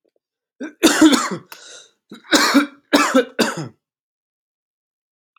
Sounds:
Cough